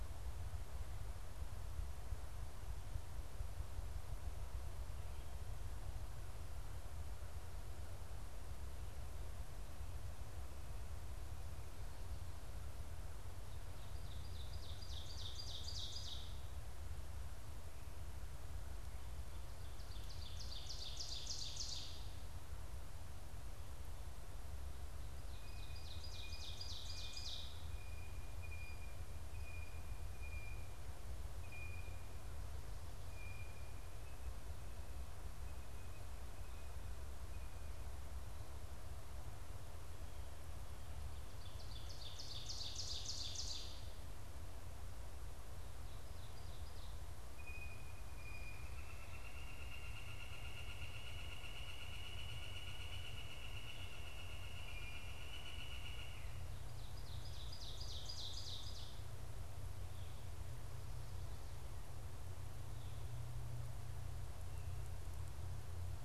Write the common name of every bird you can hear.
Ovenbird, Blue Jay, Northern Flicker